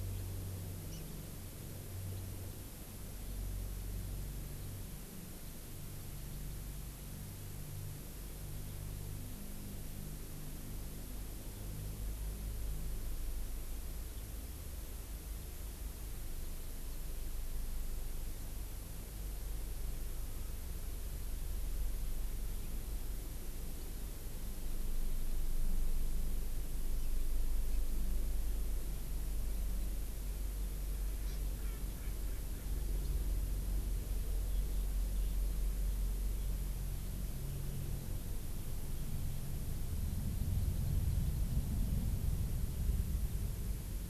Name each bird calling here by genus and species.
Chlorodrepanis virens, Pternistis erckelii